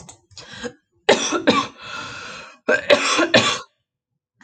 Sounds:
Cough